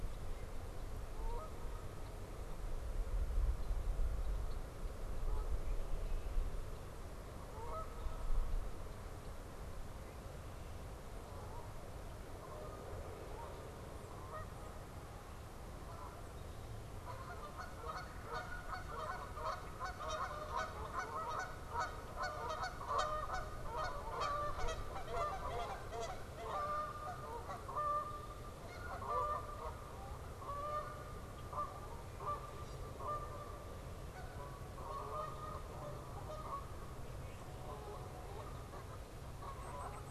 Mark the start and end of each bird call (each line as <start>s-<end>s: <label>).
0.9s-2.0s: Canada Goose (Branta canadensis)
3.3s-6.6s: Red-winged Blackbird (Agelaius phoeniceus)
5.1s-5.7s: Canada Goose (Branta canadensis)
7.4s-8.1s: Canada Goose (Branta canadensis)
7.6s-9.4s: Red-winged Blackbird (Agelaius phoeniceus)
9.9s-10.8s: Red-winged Blackbird (Agelaius phoeniceus)
11.2s-40.1s: Canada Goose (Branta canadensis)
17.8s-18.6s: Red-bellied Woodpecker (Melanerpes carolinus)
32.4s-32.8s: unidentified bird
37.0s-37.8s: Red-winged Blackbird (Agelaius phoeniceus)
39.5s-40.1s: unidentified bird